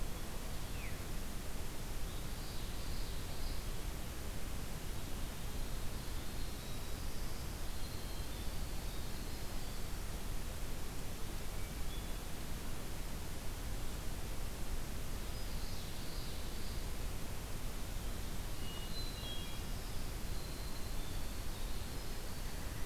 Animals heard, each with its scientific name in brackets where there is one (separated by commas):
Hermit Thrush (Catharus guttatus), Common Yellowthroat (Geothlypis trichas), Winter Wren (Troglodytes hiemalis)